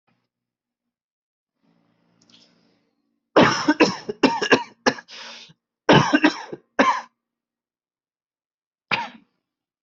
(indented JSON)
{
  "expert_labels": [
    {
      "quality": "good",
      "cough_type": "wet",
      "dyspnea": false,
      "wheezing": false,
      "stridor": false,
      "choking": false,
      "congestion": false,
      "nothing": true,
      "diagnosis": "lower respiratory tract infection",
      "severity": "mild"
    }
  ],
  "age": 29,
  "gender": "male",
  "respiratory_condition": false,
  "fever_muscle_pain": false,
  "status": "symptomatic"
}